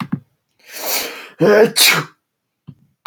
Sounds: Sneeze